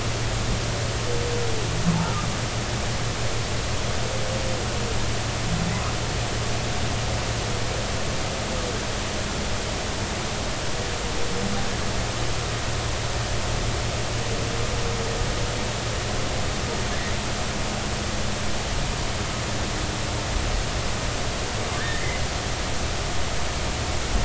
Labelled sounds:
21.8	22.2	humpback whale, 1.5 to 2.1 kHz

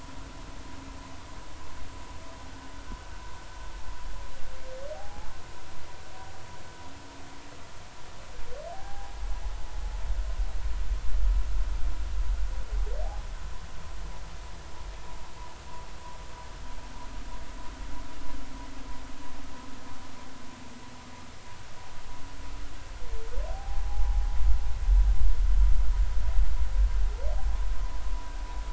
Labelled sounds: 4.9	5.3	humpback whale, 0.80 to 0.93 kHz
8.7	9.2	humpback whale, 0.80 to 0.86 kHz
23.5	24.3	humpback whale, 0.80 to 0.99 kHz

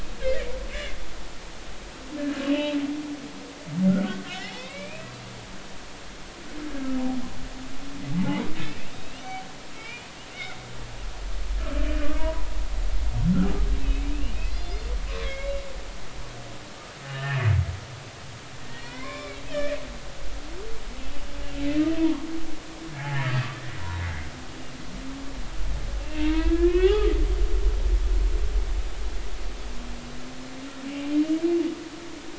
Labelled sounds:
2.5	2.7	humpback whale, 2.4 to 3.1 kHz
4.3	5.1	humpback whale, 0.80 to 3.8 kHz
8.2	8.5	humpback whale, 0.80 to 0.99 kHz
8.9	10.6	humpback whale, 1.2 to 4.0 kHz
12.2	12.5	humpback whale, 0.90 to 1.1 kHz
13.8	14.9	humpback whale, 2.3 to 5.0 kHz
15.2	15.6	humpback whale, 2.1 to 2.3 kHz
17.0	17.5	humpback whale, 1.6 to 2.9 kHz
18.7	19.8	humpback whale, 0.93 to 3.6 kHz
26.0	27.1	humpback whale, 0.80 to 3.5 kHz

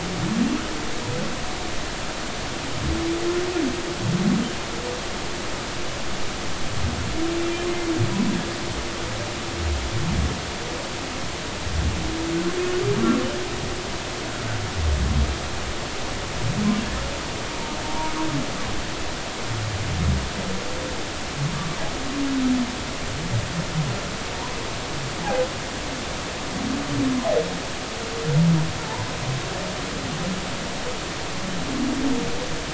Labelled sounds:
17.8	18.1	humpback whale, 0.90 to 0.99 kHz

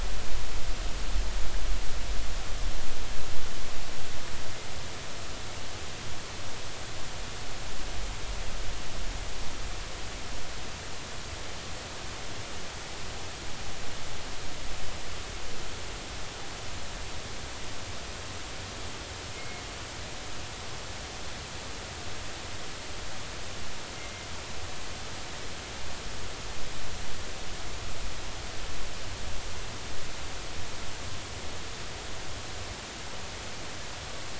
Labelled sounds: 19.3	19.6	killer whale, northern resident, G clan, call N24ii, 2.1 to 2.2 kHz
24.0	24.3	killer whale, northern resident, G clan, call N24ii, 2.0 to 2.2 kHz

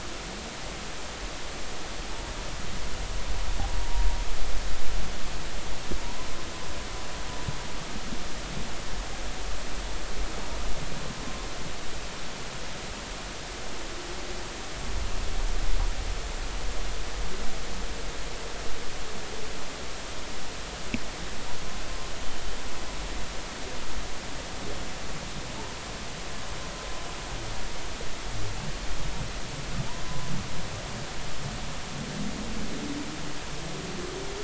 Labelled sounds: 3.8	4.1	humpback whale, 0.90 to 0.99 kHz
30.1	30.3	humpback whale, 0.96 to 1.1 kHz

